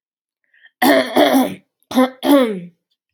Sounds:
Throat clearing